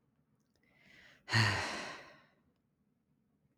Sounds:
Sigh